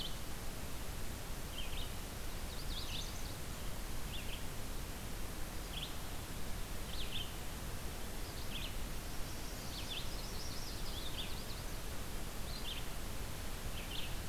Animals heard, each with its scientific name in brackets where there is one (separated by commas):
Red-eyed Vireo (Vireo olivaceus), Chestnut-sided Warbler (Setophaga pensylvanica)